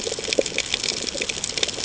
{"label": "ambient", "recorder": "HydroMoth"}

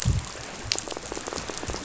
{"label": "biophony, rattle", "recorder": "SoundTrap 500"}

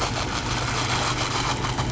{"label": "anthrophony, boat engine", "recorder": "SoundTrap 500"}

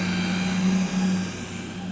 {"label": "anthrophony, boat engine", "recorder": "SoundTrap 500"}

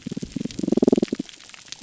{"label": "biophony, damselfish", "recorder": "SoundTrap 300"}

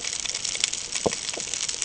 {"label": "ambient", "recorder": "HydroMoth"}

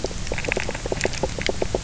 {"label": "biophony, knock croak", "recorder": "SoundTrap 300"}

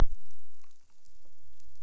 {"label": "biophony", "recorder": "SoundTrap 300"}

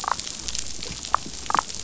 {"label": "biophony, damselfish", "recorder": "SoundTrap 500"}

